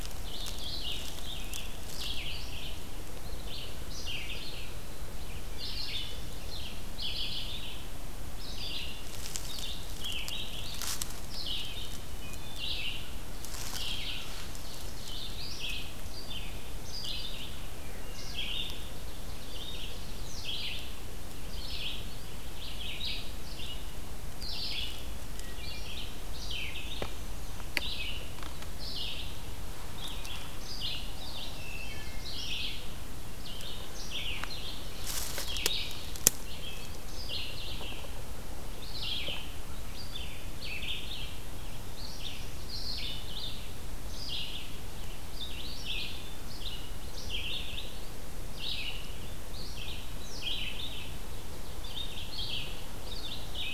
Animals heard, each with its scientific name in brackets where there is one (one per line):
Ovenbird (Seiurus aurocapilla)
Black-and-white Warbler (Mniotilta varia)
Wood Thrush (Hylocichla mustelina)
Red-eyed Vireo (Vireo olivaceus)